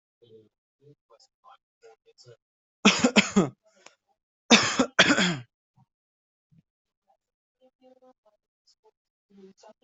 {"expert_labels": [{"quality": "ok", "cough_type": "dry", "dyspnea": false, "wheezing": false, "stridor": false, "choking": false, "congestion": false, "nothing": true, "diagnosis": "upper respiratory tract infection", "severity": "mild"}]}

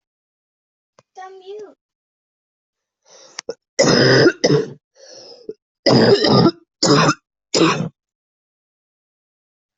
{"expert_labels": [{"quality": "ok", "cough_type": "wet", "dyspnea": false, "wheezing": false, "stridor": false, "choking": false, "congestion": false, "nothing": true, "diagnosis": "obstructive lung disease", "severity": "mild"}], "age": 40, "gender": "female", "respiratory_condition": true, "fever_muscle_pain": true, "status": "symptomatic"}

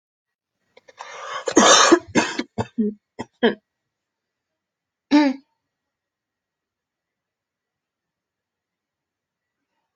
{"expert_labels": [{"quality": "good", "cough_type": "dry", "dyspnea": false, "wheezing": false, "stridor": false, "choking": false, "congestion": false, "nothing": true, "diagnosis": "upper respiratory tract infection", "severity": "mild"}], "age": 27, "gender": "female", "respiratory_condition": false, "fever_muscle_pain": false, "status": "symptomatic"}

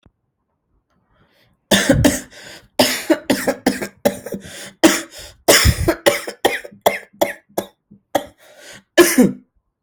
{"expert_labels": [{"quality": "ok", "cough_type": "dry", "dyspnea": false, "wheezing": false, "stridor": false, "choking": false, "congestion": false, "nothing": true, "diagnosis": "COVID-19", "severity": "severe"}], "age": 27, "gender": "male", "respiratory_condition": false, "fever_muscle_pain": false, "status": "COVID-19"}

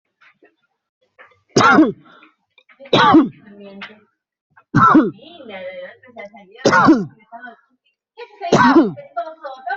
{"expert_labels": [{"quality": "ok", "cough_type": "dry", "dyspnea": false, "wheezing": false, "stridor": false, "choking": false, "congestion": false, "nothing": true, "diagnosis": "COVID-19", "severity": "mild"}], "age": 40, "gender": "male", "respiratory_condition": false, "fever_muscle_pain": false, "status": "symptomatic"}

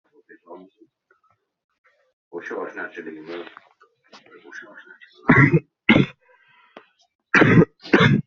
{"expert_labels": [{"quality": "ok", "cough_type": "unknown", "dyspnea": false, "wheezing": false, "stridor": false, "choking": false, "congestion": false, "nothing": true, "diagnosis": "COVID-19", "severity": "mild"}]}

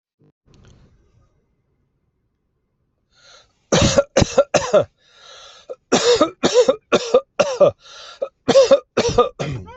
{"expert_labels": [{"quality": "good", "cough_type": "dry", "dyspnea": false, "wheezing": false, "stridor": false, "choking": false, "congestion": false, "nothing": true, "diagnosis": "upper respiratory tract infection", "severity": "unknown"}], "age": 49, "gender": "male", "respiratory_condition": false, "fever_muscle_pain": false, "status": "healthy"}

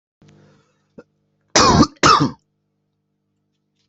{"expert_labels": [{"quality": "ok", "cough_type": "dry", "dyspnea": false, "wheezing": false, "stridor": false, "choking": false, "congestion": false, "nothing": true, "diagnosis": "COVID-19", "severity": "mild"}]}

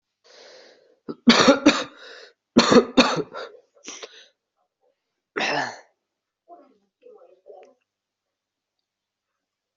{"expert_labels": [{"quality": "ok", "cough_type": "unknown", "dyspnea": false, "wheezing": false, "stridor": false, "choking": false, "congestion": false, "nothing": true, "diagnosis": "COVID-19", "severity": "mild"}], "gender": "male", "respiratory_condition": true, "fever_muscle_pain": false, "status": "symptomatic"}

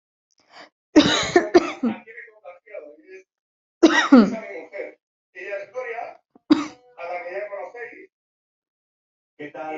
{"expert_labels": [{"quality": "ok", "cough_type": "dry", "dyspnea": false, "wheezing": false, "stridor": false, "choking": false, "congestion": false, "nothing": true, "diagnosis": "COVID-19", "severity": "mild"}], "age": 23, "gender": "female", "respiratory_condition": true, "fever_muscle_pain": false, "status": "healthy"}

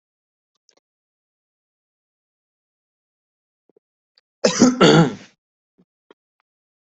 {"expert_labels": [{"quality": "good", "cough_type": "dry", "dyspnea": false, "wheezing": false, "stridor": false, "choking": false, "congestion": false, "nothing": true, "diagnosis": "healthy cough", "severity": "pseudocough/healthy cough"}]}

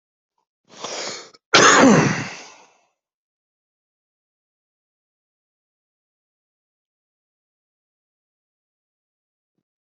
{"expert_labels": [{"quality": "good", "cough_type": "dry", "dyspnea": false, "wheezing": false, "stridor": false, "choking": false, "congestion": false, "nothing": true, "diagnosis": "COVID-19", "severity": "unknown"}], "age": 35, "gender": "male", "respiratory_condition": false, "fever_muscle_pain": false, "status": "symptomatic"}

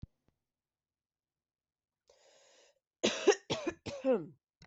{"expert_labels": [{"quality": "good", "cough_type": "dry", "dyspnea": false, "wheezing": false, "stridor": false, "choking": false, "congestion": false, "nothing": true, "diagnosis": "healthy cough", "severity": "pseudocough/healthy cough"}], "age": 22, "gender": "female", "respiratory_condition": false, "fever_muscle_pain": false, "status": "symptomatic"}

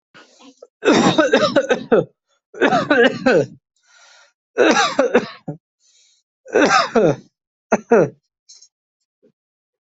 {"expert_labels": [{"quality": "good", "cough_type": "dry", "dyspnea": false, "wheezing": false, "stridor": false, "choking": false, "congestion": false, "nothing": true, "diagnosis": "upper respiratory tract infection", "severity": "mild"}], "age": 39, "gender": "male", "respiratory_condition": false, "fever_muscle_pain": false, "status": "healthy"}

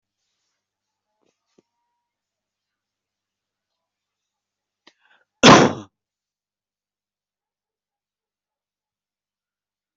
{"expert_labels": [{"quality": "good", "cough_type": "dry", "dyspnea": false, "wheezing": false, "stridor": false, "choking": false, "congestion": false, "nothing": true, "diagnosis": "healthy cough", "severity": "pseudocough/healthy cough"}], "gender": "female", "respiratory_condition": true, "fever_muscle_pain": true, "status": "healthy"}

